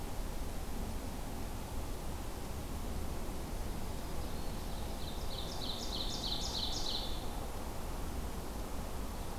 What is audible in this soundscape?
Black-throated Green Warbler, Ovenbird